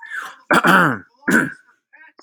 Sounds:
Throat clearing